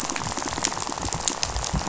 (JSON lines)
{"label": "biophony, rattle", "recorder": "SoundTrap 500"}